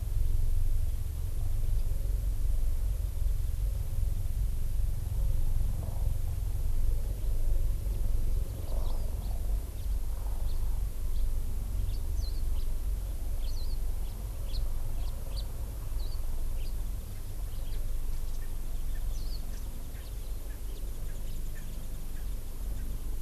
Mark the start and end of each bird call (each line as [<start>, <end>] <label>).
[9.22, 9.32] House Finch (Haemorhous mexicanus)
[9.72, 9.92] House Finch (Haemorhous mexicanus)
[10.42, 10.52] House Finch (Haemorhous mexicanus)
[11.12, 11.22] House Finch (Haemorhous mexicanus)
[11.82, 11.92] House Finch (Haemorhous mexicanus)
[12.12, 12.42] Warbling White-eye (Zosterops japonicus)
[12.52, 12.62] House Finch (Haemorhous mexicanus)
[13.42, 13.52] House Finch (Haemorhous mexicanus)
[13.52, 13.72] Warbling White-eye (Zosterops japonicus)
[14.02, 14.12] House Finch (Haemorhous mexicanus)
[14.42, 14.62] House Finch (Haemorhous mexicanus)
[15.02, 15.42] House Finch (Haemorhous mexicanus)
[16.02, 16.22] Warbling White-eye (Zosterops japonicus)
[16.52, 16.72] House Finch (Haemorhous mexicanus)
[17.52, 17.82] House Finch (Haemorhous mexicanus)
[17.72, 17.82] Erckel's Francolin (Pternistis erckelii)
[18.42, 18.52] Erckel's Francolin (Pternistis erckelii)
[18.92, 19.02] Erckel's Francolin (Pternistis erckelii)
[19.12, 19.42] Warbling White-eye (Zosterops japonicus)
[19.52, 19.62] Erckel's Francolin (Pternistis erckelii)
[19.92, 20.02] Erckel's Francolin (Pternistis erckelii)
[20.42, 20.62] Erckel's Francolin (Pternistis erckelii)
[20.62, 20.82] House Finch (Haemorhous mexicanus)
[20.72, 23.02] Warbling White-eye (Zosterops japonicus)
[21.02, 21.12] Erckel's Francolin (Pternistis erckelii)
[21.22, 21.32] House Finch (Haemorhous mexicanus)
[21.52, 21.62] Erckel's Francolin (Pternistis erckelii)